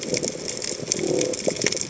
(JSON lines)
{"label": "biophony", "recorder": "HydroMoth"}